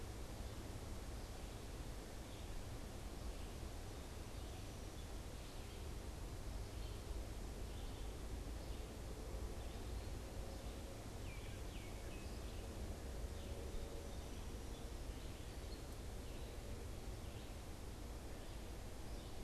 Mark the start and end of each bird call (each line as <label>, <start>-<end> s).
Red-eyed Vireo (Vireo olivaceus), 0.0-19.4 s
Baltimore Oriole (Icterus galbula), 10.9-12.5 s